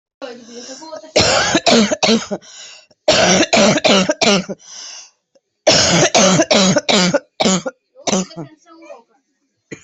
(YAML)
expert_labels:
- quality: ok
  cough_type: dry
  dyspnea: false
  wheezing: false
  stridor: false
  choking: false
  congestion: false
  nothing: true
  diagnosis: COVID-19
  severity: mild
age: 38
gender: female
respiratory_condition: true
fever_muscle_pain: true
status: symptomatic